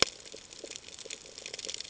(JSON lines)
{"label": "ambient", "recorder": "HydroMoth"}